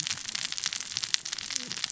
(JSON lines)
{"label": "biophony, cascading saw", "recorder": "SoundTrap 600 or HydroMoth"}